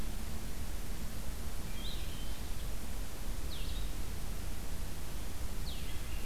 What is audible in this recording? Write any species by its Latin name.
Vireo solitarius